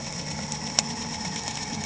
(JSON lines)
{"label": "anthrophony, boat engine", "recorder": "HydroMoth"}